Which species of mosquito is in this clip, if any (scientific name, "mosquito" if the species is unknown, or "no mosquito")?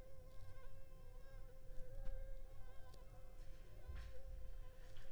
Anopheles funestus s.s.